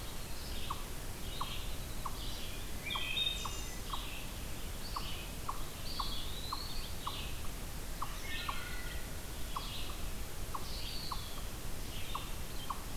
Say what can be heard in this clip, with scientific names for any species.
Vireo olivaceus, unknown mammal, Hylocichla mustelina, Contopus virens